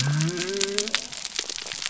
{"label": "biophony", "recorder": "SoundTrap 300"}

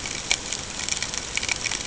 {"label": "ambient", "recorder": "HydroMoth"}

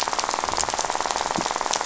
{"label": "biophony, rattle", "recorder": "SoundTrap 500"}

